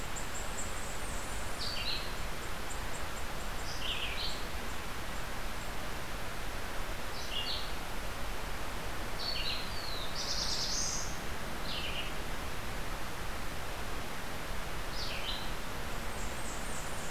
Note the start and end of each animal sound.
[0.00, 17.10] Red-eyed Vireo (Vireo olivaceus)
[0.53, 1.77] Blackburnian Warbler (Setophaga fusca)
[9.65, 11.19] Black-throated Blue Warbler (Setophaga caerulescens)
[16.04, 17.10] Blackburnian Warbler (Setophaga fusca)

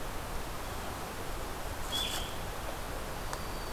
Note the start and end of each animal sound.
[0.00, 3.72] Blue-headed Vireo (Vireo solitarius)
[3.12, 3.72] Black-throated Green Warbler (Setophaga virens)

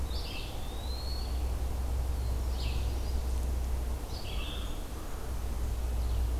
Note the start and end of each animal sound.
[0.00, 1.56] Eastern Wood-Pewee (Contopus virens)
[2.31, 6.39] Red-eyed Vireo (Vireo olivaceus)

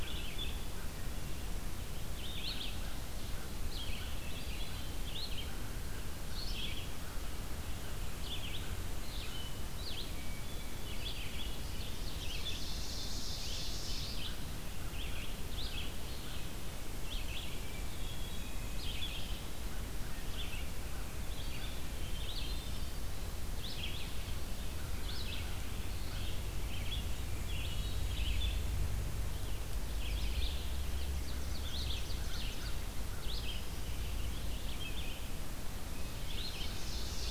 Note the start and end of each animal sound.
[0.00, 37.31] Red-eyed Vireo (Vireo olivaceus)
[2.77, 4.97] American Crow (Corvus brachyrhynchos)
[4.09, 4.96] Hermit Thrush (Catharus guttatus)
[5.42, 8.85] American Crow (Corvus brachyrhynchos)
[10.13, 10.97] Hermit Thrush (Catharus guttatus)
[11.45, 14.15] Ovenbird (Seiurus aurocapilla)
[17.51, 18.83] Hermit Thrush (Catharus guttatus)
[21.98, 23.36] Hermit Thrush (Catharus guttatus)
[24.66, 26.33] American Crow (Corvus brachyrhynchos)
[27.22, 28.70] Hermit Thrush (Catharus guttatus)
[30.65, 32.94] Ovenbird (Seiurus aurocapilla)
[32.14, 33.57] American Crow (Corvus brachyrhynchos)
[36.31, 37.31] Ovenbird (Seiurus aurocapilla)

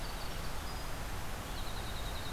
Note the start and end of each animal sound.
[0.00, 2.32] Winter Wren (Troglodytes hiemalis)

